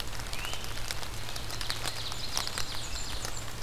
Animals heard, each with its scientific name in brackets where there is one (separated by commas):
Ovenbird (Seiurus aurocapilla), Blackburnian Warbler (Setophaga fusca), Great Crested Flycatcher (Myiarchus crinitus)